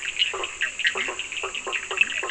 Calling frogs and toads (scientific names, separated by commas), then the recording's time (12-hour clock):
Boana bischoffi, Boana faber, Leptodactylus latrans, Sphaenorhynchus surdus
9:45pm